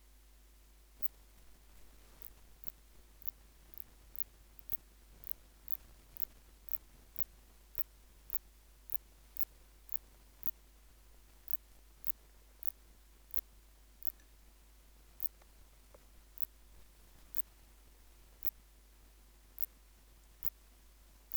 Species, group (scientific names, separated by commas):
Phaneroptera nana, Orthoptera